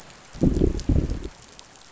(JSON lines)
{"label": "biophony, growl", "recorder": "SoundTrap 500"}